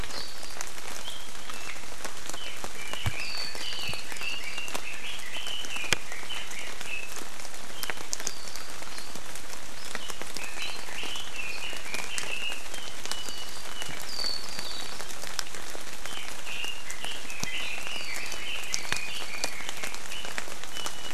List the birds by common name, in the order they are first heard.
Red-billed Leiothrix, Warbling White-eye, Iiwi